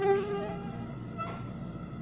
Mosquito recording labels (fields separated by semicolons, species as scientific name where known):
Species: Aedes albopictus; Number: several; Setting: insect culture